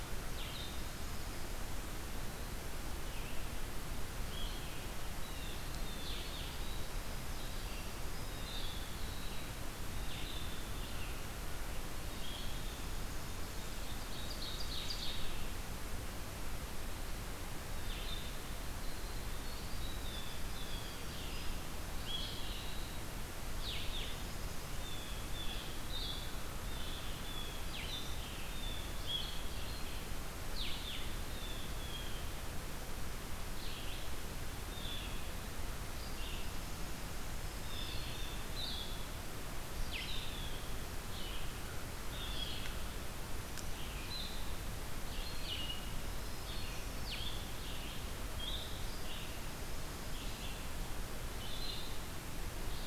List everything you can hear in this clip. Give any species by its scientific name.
Vireo olivaceus, Cyanocitta cristata, Troglodytes hiemalis, Seiurus aurocapilla, Setophaga virens